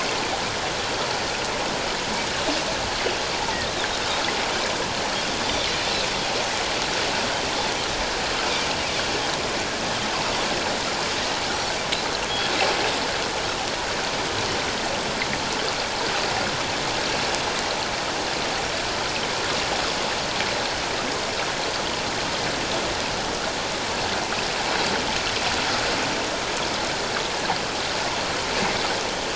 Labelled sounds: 5.4	5.7	Pacific white-sided dolphin, 3.4 to 3.7 kHz

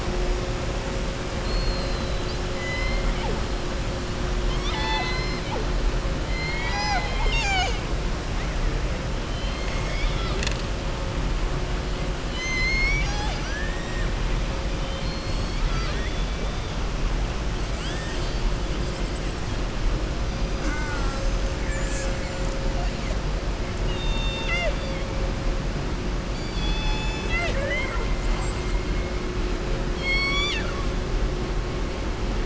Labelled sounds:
1.3	2.4	killer whale, southern resident, 3.2 to 4.9 kHz
4.4	5.6	killer whale, southern resident, 0.80 to 6.2 kHz
6.2	7.8	killer whale, southern resident, 0.69 to 7.5 kHz
12.2	14.1	killer whale, southern resident, 0.81 to 7.5 kHz
14.7	16.3	killer whale, southern resident, 0.66 to 6.1 kHz
20.5	21.2	killer whale, southern resident, 0.30 to 2.4 kHz
21.5	22.3	killer whale, southern resident, 1.2 to 2.7 kHz
23.8	25.0	killer whale, southern resident, 0.62 to 7.2 kHz
26.2	28.1	killer whale, southern resident, 0.52 to 7.7 kHz
30.0	30.8	killer whale, southern resident, 1.1 to 7.8 kHz

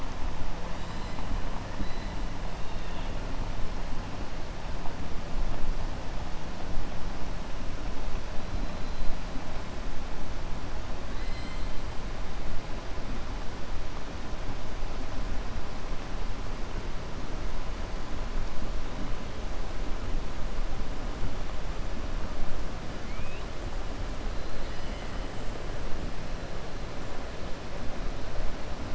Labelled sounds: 0.7	1.2	killer whale, southern resident, 2.9 to 5.1 kHz
11.1	11.7	killer whale, southern resident, 1.6 to 5.2 kHz
23.0	23.5	killer whale, southern resident, 1.3 to 3.8 kHz

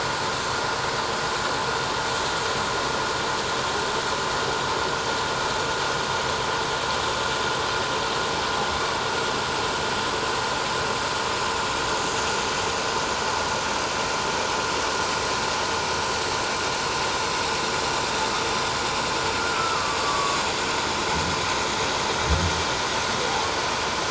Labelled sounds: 19.4	20.4	humpback whale, 1.1 to 1.5 kHz

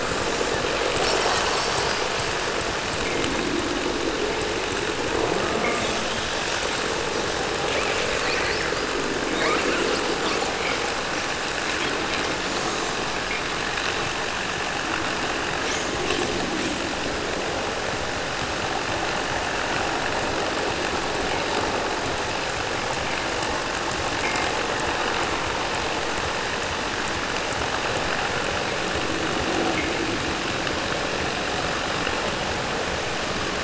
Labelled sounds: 0.5	2.2	killer whale, 0.65 to 8.0 kHz
7.6	11.3	killer whale, 0 to 8.0 kHz

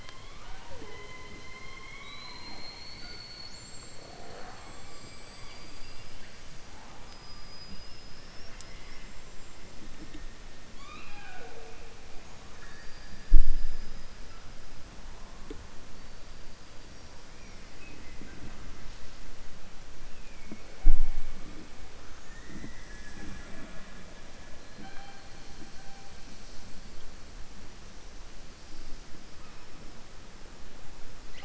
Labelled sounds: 10.7	11.8	killer whale, southern resident, 0.45 to 4.7 kHz

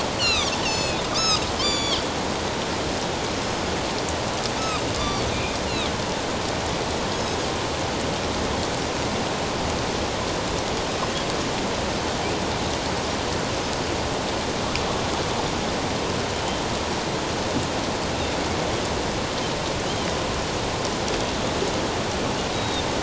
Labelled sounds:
0.1	2.0	Pacific white-sided dolphin, 1.1 to 8.0 kHz
4.6	5.3	Pacific white-sided dolphin, 1.1 to 6.6 kHz
7.1	7.4	Pacific white-sided dolphin, 6.4 to 6.7 kHz
19.8	20.1	Pacific white-sided dolphin, 2.9 to 3.3 kHz
22.5	22.8	Pacific white-sided dolphin, 3.6 to 3.9 kHz

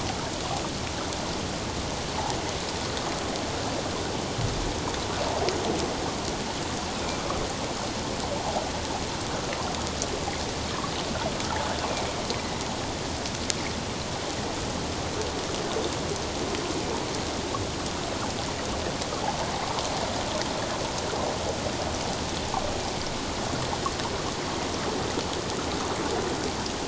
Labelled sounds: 6.9	7.2	killer whale, northern resident, A clan, AA subclan, 2.3 to 2.6 kHz

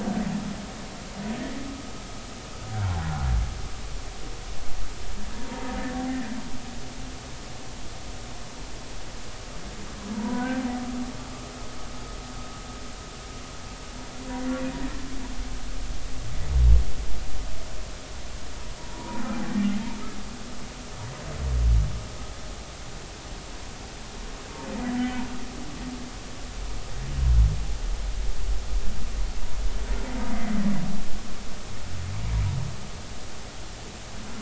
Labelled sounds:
2.7	3.3	humpback whale, 1.3 to 1.8 kHz
5.3	5.6	humpback whale, 0.90 to 0.99 kHz
10.2	10.6	humpback whale, 0.90 to 1.6 kHz
18.8	19.2	humpback whale, 0.86 to 1.1 kHz
24.9	25.2	humpback whale, 1.9 to 2.0 kHz

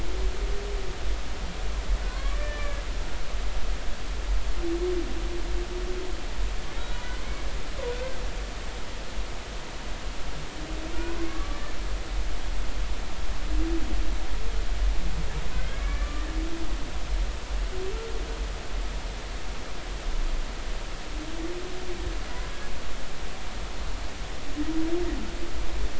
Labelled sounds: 2.0	2.8	humpback whale, 0.99 to 1.9 kHz
7.9	8.2	humpback whale, 1.4 to 1.6 kHz
11.3	11.6	humpback whale, 1.1 to 1.2 kHz
15.7	16.3	humpback whale, 1.1 to 2.4 kHz

